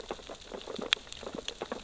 {"label": "biophony, sea urchins (Echinidae)", "recorder": "SoundTrap 600 or HydroMoth"}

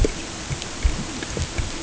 {"label": "ambient", "recorder": "HydroMoth"}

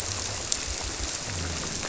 {"label": "biophony", "recorder": "SoundTrap 300"}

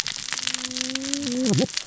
{"label": "biophony, cascading saw", "recorder": "SoundTrap 600 or HydroMoth"}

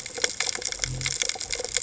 {"label": "biophony", "recorder": "HydroMoth"}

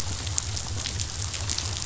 {"label": "biophony", "recorder": "SoundTrap 500"}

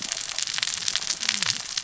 {"label": "biophony, cascading saw", "recorder": "SoundTrap 600 or HydroMoth"}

